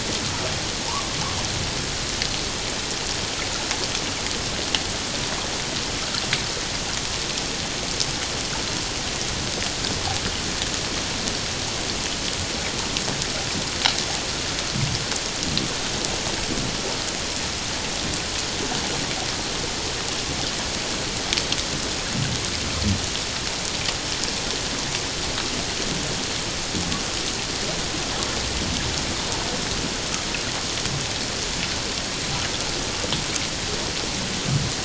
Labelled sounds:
0.9	1.2	humpback whale, 0.81 to 1.2 kHz

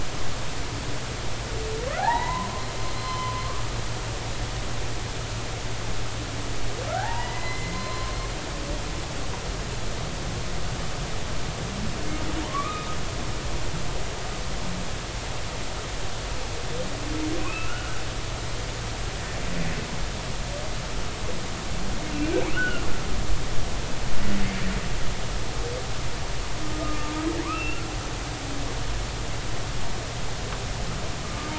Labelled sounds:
2.0	3.5	humpback whale, 0.80 to 4.2 kHz
4.0	4.4	humpback whale, 0.96 to 1.1 kHz
6.9	8.1	humpback whale, 0.80 to 4.2 kHz
12.5	12.9	humpback whale, 1.0 to 2.6 kHz
17.4	18.0	humpback whale, 1.2 to 2.7 kHz
22.5	22.9	humpback whale, 1.3 to 3.1 kHz
26.8	27.8	humpback whale, 1.2 to 2.9 kHz

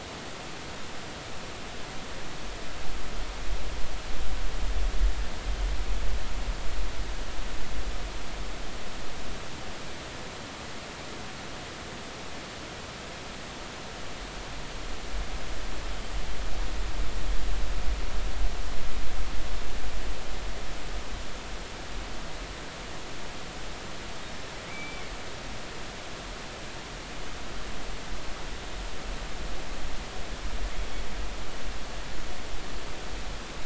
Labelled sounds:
24.7	25.1	killer whale, northern resident, 2.1 to 2.4 kHz

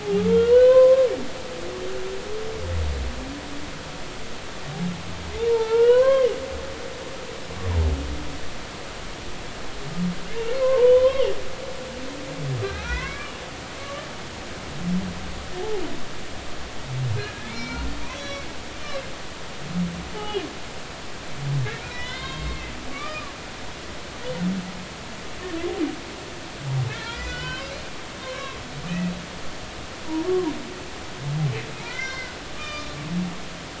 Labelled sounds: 0.0	1.1	humpback whale, 0.80 to 3.1 kHz
5.5	6.3	humpback whale, 0.83 to 3.0 kHz
10.6	11.3	humpback whale, 0.86 to 3.6 kHz
12.8	13.3	humpback whale, 0.93 to 2.8 kHz
13.8	14.0	humpback whale, 1.1 to 1.2 kHz
17.2	18.5	humpback whale, 1.5 to 6.3 kHz
18.8	19.0	humpback whale, 2.1 to 2.4 kHz
20.1	20.4	humpback whale, 0.80 to 3.1 kHz
21.6	23.3	humpback whale, 0.96 to 4.3 kHz
26.9	27.7	humpback whale, 0.96 to 3.6 kHz
28.2	28.6	humpback whale, 0.99 to 1.2 kHz
28.9	29.1	humpback whale, 2.4 to 2.7 kHz
30.3	30.5	humpback whale, 0.90 to 1.2 kHz
31.8	33.0	humpback whale, 1.1 to 5.4 kHz

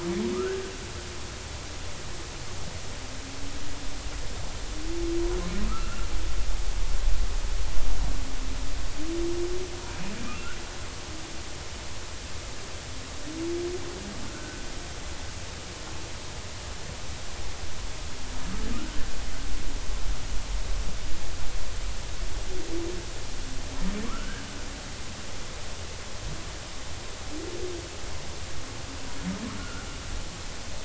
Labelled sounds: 0.3	0.6	humpback whale, 1.1 to 1.7 kHz
5.7	6.1	humpback whale, 1.2 to 1.5 kHz
14.3	14.6	humpback whale, 1.3 to 1.6 kHz
24.0	24.4	humpback whale, 0.99 to 1.7 kHz
29.5	29.9	humpback whale, 1.2 to 1.5 kHz

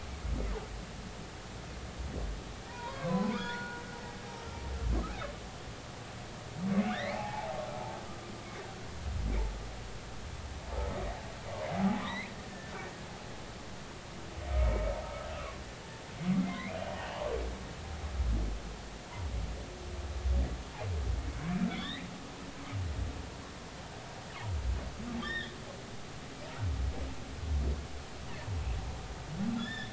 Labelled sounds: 2.7	3.8	humpback whale, 0.90 to 4.4 kHz
6.8	7.5	humpback whale, 0.80 to 4.5 kHz
11.7	12.7	humpback whale, 0.80 to 4.3 kHz
14.5	14.7	humpback whale, 2.1 to 2.4 kHz
16.4	17.2	humpback whale, 1.9 to 3.0 kHz
21.7	22.1	humpback whale, 1.6 to 4.0 kHz
25.2	25.6	humpback whale, 1.6 to 3.8 kHz
29.6	29.9	humpback whale, 1.6 to 5.3 kHz

